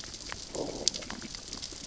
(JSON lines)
{"label": "biophony, growl", "recorder": "SoundTrap 600 or HydroMoth"}